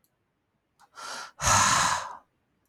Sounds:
Sigh